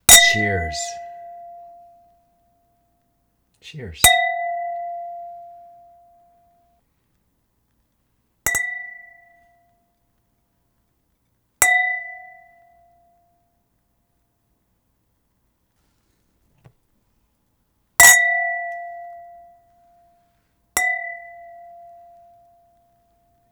Is there a man's voice?
yes